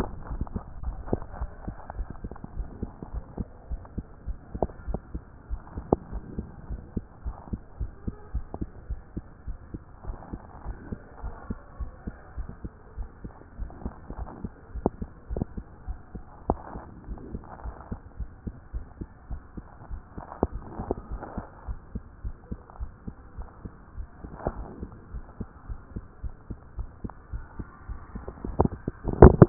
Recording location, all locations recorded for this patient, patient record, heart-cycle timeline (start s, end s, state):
mitral valve (MV)
aortic valve (AV)+pulmonary valve (PV)+tricuspid valve (TV)+mitral valve (MV)
#Age: Child
#Sex: Female
#Height: 124.0 cm
#Weight: 29.8 kg
#Pregnancy status: False
#Murmur: Absent
#Murmur locations: nan
#Most audible location: nan
#Systolic murmur timing: nan
#Systolic murmur shape: nan
#Systolic murmur grading: nan
#Systolic murmur pitch: nan
#Systolic murmur quality: nan
#Diastolic murmur timing: nan
#Diastolic murmur shape: nan
#Diastolic murmur grading: nan
#Diastolic murmur pitch: nan
#Diastolic murmur quality: nan
#Outcome: Normal
#Campaign: 2014 screening campaign
0.00	2.56	unannotated
2.56	2.68	S1
2.68	2.82	systole
2.82	2.90	S2
2.90	3.12	diastole
3.12	3.24	S1
3.24	3.38	systole
3.38	3.48	S2
3.48	3.70	diastole
3.70	3.82	S1
3.82	3.96	systole
3.96	4.06	S2
4.06	4.26	diastole
4.26	4.38	S1
4.38	4.54	systole
4.54	4.66	S2
4.66	4.88	diastole
4.88	5.00	S1
5.00	5.14	systole
5.14	5.22	S2
5.22	5.50	diastole
5.50	5.60	S1
5.60	5.76	systole
5.76	5.86	S2
5.86	6.12	diastole
6.12	6.24	S1
6.24	6.38	systole
6.38	6.46	S2
6.46	6.68	diastole
6.68	6.80	S1
6.80	6.94	systole
6.94	7.04	S2
7.04	7.24	diastole
7.24	7.36	S1
7.36	7.52	systole
7.52	7.60	S2
7.60	7.80	diastole
7.80	7.92	S1
7.92	8.06	systole
8.06	8.14	S2
8.14	8.34	diastole
8.34	8.46	S1
8.46	8.60	systole
8.60	8.68	S2
8.68	8.88	diastole
8.88	9.00	S1
9.00	9.16	systole
9.16	9.24	S2
9.24	9.46	diastole
9.46	9.58	S1
9.58	9.72	systole
9.72	9.82	S2
9.82	10.06	diastole
10.06	10.16	S1
10.16	10.32	systole
10.32	10.42	S2
10.42	10.66	diastole
10.66	10.76	S1
10.76	10.90	systole
10.90	11.00	S2
11.00	11.22	diastole
11.22	11.34	S1
11.34	11.48	systole
11.48	11.58	S2
11.58	11.80	diastole
11.80	11.90	S1
11.90	12.06	systole
12.06	12.16	S2
12.16	12.36	diastole
12.36	12.48	S1
12.48	12.62	systole
12.62	12.72	S2
12.72	12.96	diastole
12.96	13.08	S1
13.08	13.22	systole
13.22	13.32	S2
13.32	13.58	diastole
13.58	13.70	S1
13.70	13.84	systole
13.84	13.92	S2
13.92	14.16	diastole
14.16	14.28	S1
14.28	14.42	systole
14.42	14.52	S2
14.52	14.74	diastole
14.74	14.84	S1
14.84	15.00	systole
15.00	15.08	S2
15.08	15.32	diastole
15.32	15.44	S1
15.44	15.56	systole
15.56	15.66	S2
15.66	15.86	diastole
15.86	15.98	S1
15.98	16.14	systole
16.14	16.24	S2
16.24	16.48	diastole
16.48	16.60	S1
16.60	16.74	systole
16.74	16.84	S2
16.84	17.08	diastole
17.08	17.20	S1
17.20	17.32	systole
17.32	17.42	S2
17.42	17.64	diastole
17.64	17.74	S1
17.74	17.90	systole
17.90	18.00	S2
18.00	18.18	diastole
18.18	18.30	S1
18.30	18.46	systole
18.46	18.54	S2
18.54	18.74	diastole
18.74	18.84	S1
18.84	19.00	systole
19.00	19.08	S2
19.08	19.30	diastole
19.30	19.40	S1
19.40	19.56	systole
19.56	19.66	S2
19.66	19.90	diastole
19.90	20.00	S1
20.00	20.16	systole
20.16	20.26	S2
20.26	20.52	diastole
20.52	20.60	S1
20.60	20.79	systole
20.79	20.88	S2
20.88	21.10	diastole
21.10	21.22	S1
21.22	21.36	systole
21.36	21.46	S2
21.46	21.66	diastole
21.66	21.78	S1
21.78	21.94	systole
21.94	22.02	S2
22.02	22.24	diastole
22.24	22.36	S1
22.36	22.50	systole
22.50	22.60	S2
22.60	22.80	diastole
22.80	22.90	S1
22.90	23.06	systole
23.06	23.16	S2
23.16	23.36	diastole
23.36	23.48	S1
23.48	23.64	systole
23.64	23.74	S2
23.74	23.96	diastole
23.96	24.08	S1
24.08	24.22	systole
24.22	24.32	S2
24.32	24.54	diastole
24.54	24.66	S1
24.66	24.80	systole
24.80	24.90	S2
24.90	25.12	diastole
25.12	25.24	S1
25.24	25.40	systole
25.40	25.48	S2
25.48	25.68	diastole
25.68	25.80	S1
25.80	25.94	systole
25.94	26.04	S2
26.04	26.24	diastole
26.24	26.34	S1
26.34	26.48	systole
26.48	26.58	S2
26.58	26.78	diastole
26.78	26.88	S1
26.88	27.02	systole
27.02	27.10	S2
27.10	27.32	diastole
27.32	27.44	S1
27.44	27.58	systole
27.58	27.68	S2
27.68	27.88	diastole
27.88	28.00	S1
28.00	28.14	systole
28.14	28.24	S2
28.24	28.44	diastole
28.44	29.49	unannotated